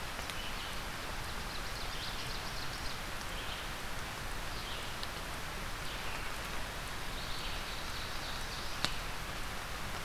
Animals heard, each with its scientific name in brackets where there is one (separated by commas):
Ovenbird (Seiurus aurocapilla), Red-eyed Vireo (Vireo olivaceus)